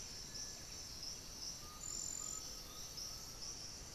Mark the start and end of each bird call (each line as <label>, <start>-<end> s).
Piratic Flycatcher (Legatus leucophaius), 0.0-3.9 s
Undulated Tinamou (Crypturellus undulatus), 1.5-3.6 s